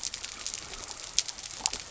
{"label": "biophony", "recorder": "SoundTrap 300"}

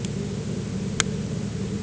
{"label": "anthrophony, boat engine", "recorder": "HydroMoth"}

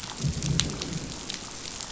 {"label": "biophony, growl", "recorder": "SoundTrap 500"}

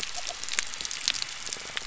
{"label": "biophony", "recorder": "SoundTrap 300"}
{"label": "anthrophony, boat engine", "recorder": "SoundTrap 300"}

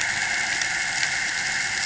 {"label": "anthrophony, boat engine", "recorder": "HydroMoth"}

